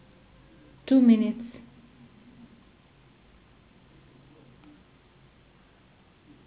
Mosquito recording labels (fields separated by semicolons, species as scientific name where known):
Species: Anopheles gambiae s.s.; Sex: female; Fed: unfed; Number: one; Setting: insect culture